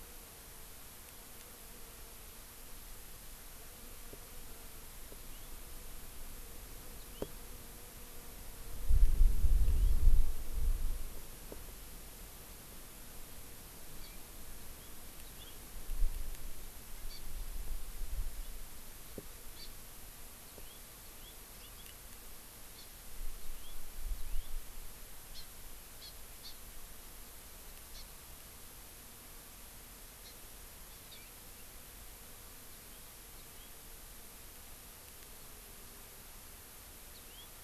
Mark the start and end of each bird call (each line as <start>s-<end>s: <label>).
5.2s-5.5s: House Finch (Haemorhous mexicanus)
7.0s-7.3s: House Finch (Haemorhous mexicanus)
9.6s-9.9s: House Finch (Haemorhous mexicanus)
14.0s-14.2s: Hawaii Amakihi (Chlorodrepanis virens)
14.6s-14.9s: House Finch (Haemorhous mexicanus)
15.3s-15.6s: House Finch (Haemorhous mexicanus)
17.1s-17.2s: Hawaii Amakihi (Chlorodrepanis virens)
19.6s-19.7s: Hawaii Amakihi (Chlorodrepanis virens)
20.5s-21.3s: House Finch (Haemorhous mexicanus)
21.6s-22.0s: House Finch (Haemorhous mexicanus)
22.7s-22.9s: Hawaii Amakihi (Chlorodrepanis virens)
23.4s-23.8s: House Finch (Haemorhous mexicanus)
24.2s-24.5s: House Finch (Haemorhous mexicanus)
25.3s-25.5s: Hawaii Amakihi (Chlorodrepanis virens)
26.0s-26.1s: Hawaii Amakihi (Chlorodrepanis virens)
26.4s-26.5s: Hawaii Amakihi (Chlorodrepanis virens)
27.9s-28.0s: Hawaii Amakihi (Chlorodrepanis virens)
30.2s-30.4s: Hawaii Amakihi (Chlorodrepanis virens)
31.1s-31.3s: House Finch (Haemorhous mexicanus)
32.7s-33.0s: House Finch (Haemorhous mexicanus)
33.3s-33.7s: House Finch (Haemorhous mexicanus)
37.1s-37.5s: House Finch (Haemorhous mexicanus)